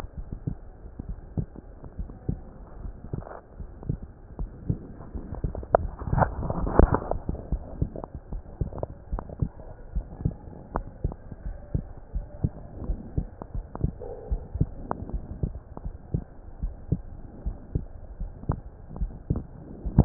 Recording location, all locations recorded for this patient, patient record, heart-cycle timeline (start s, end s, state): pulmonary valve (PV)
aortic valve (AV)+pulmonary valve (PV)+tricuspid valve (TV)+mitral valve (MV)
#Age: Child
#Sex: Female
#Height: 140.0 cm
#Weight: 29.0 kg
#Pregnancy status: False
#Murmur: Absent
#Murmur locations: nan
#Most audible location: nan
#Systolic murmur timing: nan
#Systolic murmur shape: nan
#Systolic murmur grading: nan
#Systolic murmur pitch: nan
#Systolic murmur quality: nan
#Diastolic murmur timing: nan
#Diastolic murmur shape: nan
#Diastolic murmur grading: nan
#Diastolic murmur pitch: nan
#Diastolic murmur quality: nan
#Outcome: Normal
#Campaign: 2015 screening campaign
0.00	9.58	unannotated
9.58	9.92	diastole
9.92	10.08	S1
10.08	10.24	systole
10.24	10.36	S2
10.36	10.74	diastole
10.74	10.86	S1
10.86	11.02	systole
11.02	11.16	S2
11.16	11.44	diastole
11.44	11.56	S1
11.56	11.72	systole
11.72	11.86	S2
11.86	12.12	diastole
12.12	12.26	S1
12.26	12.42	systole
12.42	12.52	S2
12.52	12.84	diastole
12.84	13.00	S1
13.00	13.16	systole
13.16	13.28	S2
13.28	13.52	diastole
13.52	13.66	S1
13.66	13.82	systole
13.82	13.96	S2
13.96	14.30	diastole
14.30	14.44	S1
14.44	14.56	systole
14.56	14.72	S2
14.72	15.10	diastole
15.10	15.22	S1
15.22	15.40	systole
15.40	15.54	S2
15.54	15.84	diastole
15.84	15.94	S1
15.94	16.12	systole
16.12	16.26	S2
16.26	16.62	diastole
16.62	16.76	S1
16.76	16.90	systole
16.90	17.06	S2
17.06	17.44	diastole
17.44	17.58	S1
17.58	17.74	systole
17.74	17.88	S2
17.88	18.20	diastole
18.20	18.32	S1
18.32	18.50	systole
18.50	18.62	S2
18.62	18.96	diastole
18.96	19.14	S1
19.14	19.28	systole
19.28	19.44	S2
19.44	19.70	diastole
19.70	20.05	unannotated